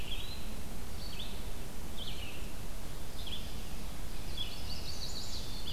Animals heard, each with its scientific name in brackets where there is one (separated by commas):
Winter Wren (Troglodytes hiemalis), Red-eyed Vireo (Vireo olivaceus), Eastern Wood-Pewee (Contopus virens), Chestnut-sided Warbler (Setophaga pensylvanica)